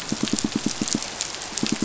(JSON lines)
{"label": "biophony, pulse", "recorder": "SoundTrap 500"}